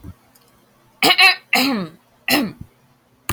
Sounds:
Throat clearing